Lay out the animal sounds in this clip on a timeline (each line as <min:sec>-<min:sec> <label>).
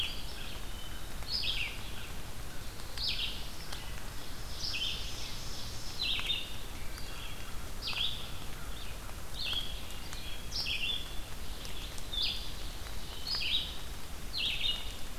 0:00.0-0:15.2 Red-eyed Vireo (Vireo olivaceus)
0:00.6-0:01.2 Wood Thrush (Hylocichla mustelina)
0:00.9-0:04.2 American Crow (Corvus brachyrhynchos)
0:04.4-0:06.2 Ovenbird (Seiurus aurocapilla)
0:06.7-0:07.7 Wood Thrush (Hylocichla mustelina)
0:07.2-0:10.6 American Crow (Corvus brachyrhynchos)